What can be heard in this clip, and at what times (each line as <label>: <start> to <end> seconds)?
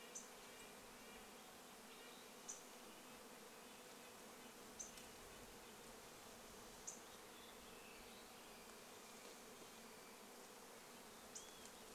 Red-breasted Nuthatch song: 0 to 6 seconds
unidentified bird chip note: 0 to 8 seconds
insect buzz: 0 to 12 seconds
unidentified sound: 6 to 10 seconds
Olive-sided Flycatcher song: 10 to 12 seconds
unidentified bird chip note: 10 to 12 seconds